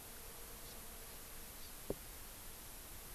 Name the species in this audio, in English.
Hawaii Amakihi